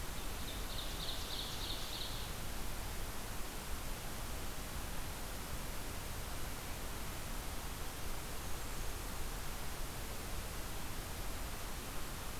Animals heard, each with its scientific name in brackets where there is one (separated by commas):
Blackburnian Warbler (Setophaga fusca), Ovenbird (Seiurus aurocapilla)